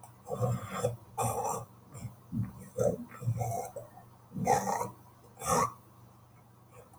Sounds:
Throat clearing